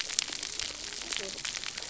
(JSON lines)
{"label": "biophony, cascading saw", "recorder": "SoundTrap 300"}